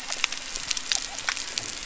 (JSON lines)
{"label": "biophony", "recorder": "SoundTrap 300"}
{"label": "anthrophony, boat engine", "recorder": "SoundTrap 300"}